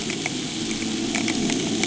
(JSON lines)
{"label": "anthrophony, boat engine", "recorder": "HydroMoth"}